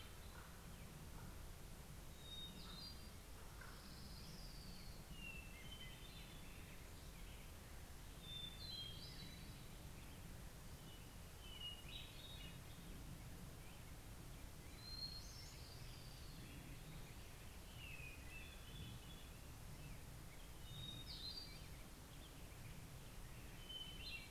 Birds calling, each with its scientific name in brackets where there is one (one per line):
Common Raven (Corvus corax)
Orange-crowned Warbler (Leiothlypis celata)
Hermit Thrush (Catharus guttatus)